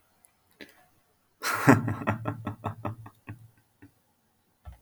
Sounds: Laughter